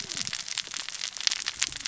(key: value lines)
label: biophony, cascading saw
recorder: SoundTrap 600 or HydroMoth